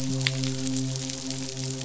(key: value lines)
label: biophony, midshipman
recorder: SoundTrap 500